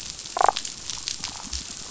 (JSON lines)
{"label": "biophony, damselfish", "recorder": "SoundTrap 500"}